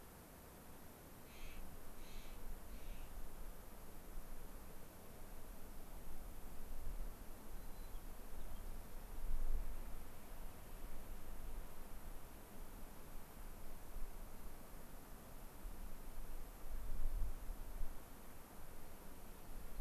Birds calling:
White-crowned Sparrow (Zonotrichia leucophrys), Clark's Nutcracker (Nucifraga columbiana)

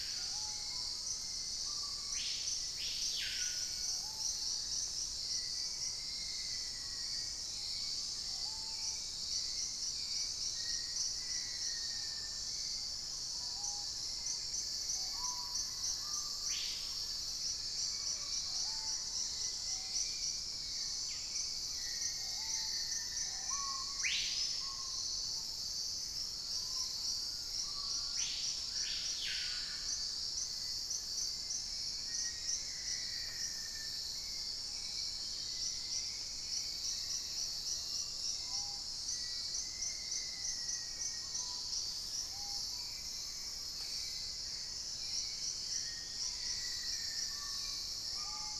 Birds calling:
Black-faced Antthrush (Formicarius analis), Purple-throated Fruitcrow (Querula purpurata), Cinereous Mourner (Laniocera hypopyrra), unidentified bird, Dusky-capped Greenlet (Pachysylvia hypoxantha), Screaming Piha (Lipaugus vociferans), Fasciated Antshrike (Cymbilaimus lineatus), Dusky-throated Antshrike (Thamnomanes ardesiacus), Hauxwell's Thrush (Turdus hauxwelli), Mealy Parrot (Amazona farinosa)

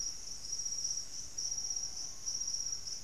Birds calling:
Screaming Piha (Lipaugus vociferans)

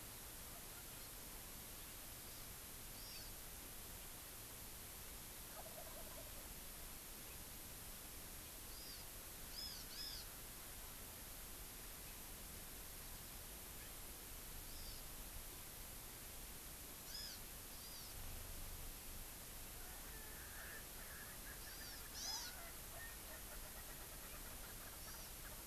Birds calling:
Wild Turkey (Meleagris gallopavo), Erckel's Francolin (Pternistis erckelii), Hawaii Amakihi (Chlorodrepanis virens)

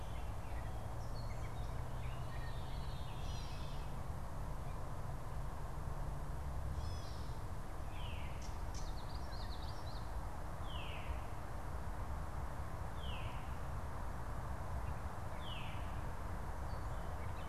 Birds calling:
Veery (Catharus fuscescens), Gray Catbird (Dumetella carolinensis), Common Yellowthroat (Geothlypis trichas)

